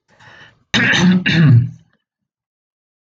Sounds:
Throat clearing